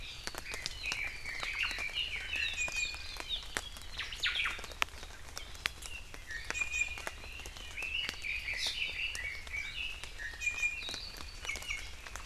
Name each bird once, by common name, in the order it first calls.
Red-billed Leiothrix, Omao, Iiwi